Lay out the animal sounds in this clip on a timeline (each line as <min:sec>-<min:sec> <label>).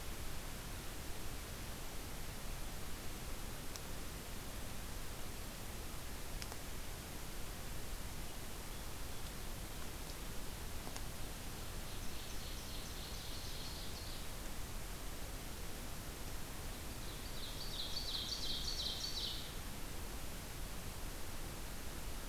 0:11.8-0:14.3 Ovenbird (Seiurus aurocapilla)
0:17.1-0:19.6 Ovenbird (Seiurus aurocapilla)